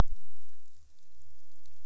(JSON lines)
{"label": "biophony", "recorder": "SoundTrap 300"}